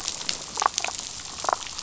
{"label": "biophony, damselfish", "recorder": "SoundTrap 500"}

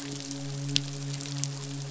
{"label": "biophony, midshipman", "recorder": "SoundTrap 500"}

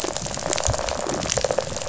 {"label": "biophony, rattle response", "recorder": "SoundTrap 500"}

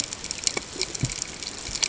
{"label": "ambient", "recorder": "HydroMoth"}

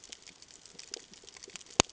{"label": "ambient", "recorder": "HydroMoth"}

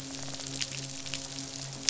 {"label": "biophony, midshipman", "recorder": "SoundTrap 500"}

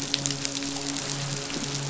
{"label": "biophony, midshipman", "recorder": "SoundTrap 500"}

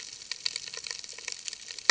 {"label": "ambient", "recorder": "HydroMoth"}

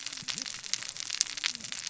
{"label": "biophony, cascading saw", "recorder": "SoundTrap 600 or HydroMoth"}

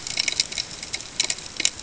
{"label": "ambient", "recorder": "HydroMoth"}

